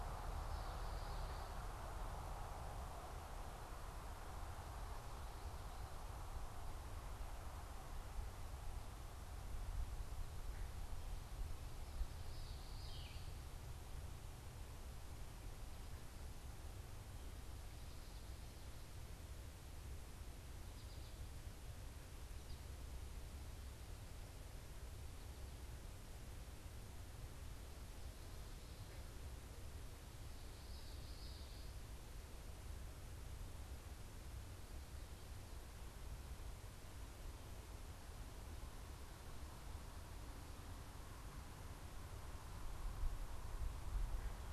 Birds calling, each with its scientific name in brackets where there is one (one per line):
Common Yellowthroat (Geothlypis trichas)
American Goldfinch (Spinus tristis)